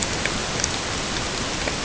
{"label": "ambient", "recorder": "HydroMoth"}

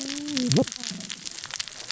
{"label": "biophony, cascading saw", "recorder": "SoundTrap 600 or HydroMoth"}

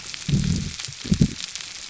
{"label": "biophony", "recorder": "SoundTrap 300"}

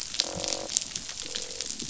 {"label": "biophony, croak", "recorder": "SoundTrap 500"}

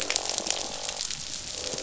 {"label": "biophony, croak", "recorder": "SoundTrap 500"}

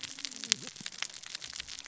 {"label": "biophony, cascading saw", "recorder": "SoundTrap 600 or HydroMoth"}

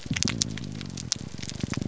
{"label": "biophony, grouper groan", "recorder": "SoundTrap 300"}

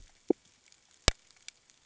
{"label": "ambient", "recorder": "HydroMoth"}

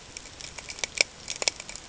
{"label": "ambient", "recorder": "HydroMoth"}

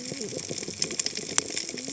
{"label": "biophony, cascading saw", "recorder": "HydroMoth"}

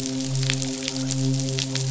{"label": "biophony, midshipman", "recorder": "SoundTrap 500"}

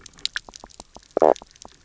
{"label": "biophony, knock croak", "recorder": "SoundTrap 300"}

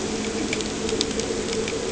{"label": "anthrophony, boat engine", "recorder": "HydroMoth"}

